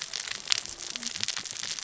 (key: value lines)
label: biophony, cascading saw
recorder: SoundTrap 600 or HydroMoth